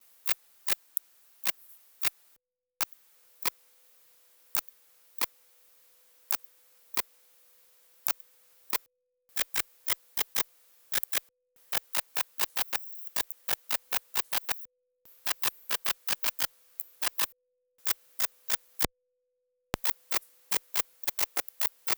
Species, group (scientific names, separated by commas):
Rhacocleis baccettii, Orthoptera